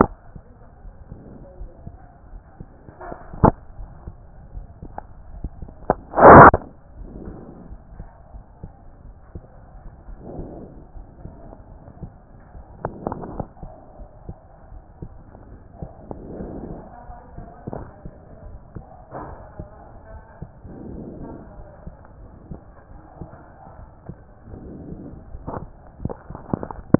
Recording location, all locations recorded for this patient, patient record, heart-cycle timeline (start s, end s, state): aortic valve (AV)
aortic valve (AV)+pulmonary valve (PV)+tricuspid valve (TV)+mitral valve (MV)
#Age: Child
#Sex: Male
#Height: 141.0 cm
#Weight: 37.5 kg
#Pregnancy status: False
#Murmur: Absent
#Murmur locations: nan
#Most audible location: nan
#Systolic murmur timing: nan
#Systolic murmur shape: nan
#Systolic murmur grading: nan
#Systolic murmur pitch: nan
#Systolic murmur quality: nan
#Diastolic murmur timing: nan
#Diastolic murmur shape: nan
#Diastolic murmur grading: nan
#Diastolic murmur pitch: nan
#Diastolic murmur quality: nan
#Outcome: Normal
#Campaign: 2014 screening campaign
0.00	13.56	unannotated
13.56	13.62	systole
13.62	13.74	S2
13.74	13.98	diastole
13.98	14.08	S1
14.08	14.26	systole
14.26	14.36	S2
14.36	14.72	diastole
14.72	14.82	S1
14.82	15.02	systole
15.02	15.10	S2
15.10	15.50	diastole
15.50	15.60	S1
15.60	15.80	systole
15.80	15.90	S2
15.90	16.38	diastole
16.38	16.52	S1
16.52	16.68	systole
16.68	16.82	S2
16.82	17.08	diastole
17.08	17.18	S1
17.18	17.36	systole
17.36	17.46	S2
17.46	17.72	diastole
17.72	17.86	S1
17.86	18.04	systole
18.04	18.12	S2
18.12	18.46	diastole
18.46	18.58	S1
18.58	18.74	systole
18.74	18.84	S2
18.84	19.24	diastole
19.24	19.36	S1
19.36	19.58	systole
19.58	19.68	S2
19.68	20.12	diastole
20.12	20.22	S1
20.22	20.40	systole
20.40	20.50	S2
20.50	20.90	diastole
20.90	21.06	S1
21.06	21.20	systole
21.20	21.34	S2
21.34	21.56	diastole
21.56	21.68	S1
21.68	21.86	systole
21.86	21.94	S2
21.94	22.20	diastole
22.20	22.30	S1
22.30	22.50	systole
22.50	22.60	S2
22.60	22.92	diastole
22.92	23.02	S1
23.02	23.20	systole
23.20	23.30	S2
23.30	23.78	diastole
23.78	23.90	S1
23.90	24.08	systole
24.08	24.16	S2
24.16	24.52	diastole
24.52	24.62	S1
24.62	24.88	systole
24.88	24.98	S2
24.98	25.32	diastole
25.32	25.44	S1
25.44	25.48	systole
25.48	26.99	unannotated